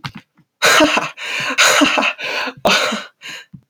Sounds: Laughter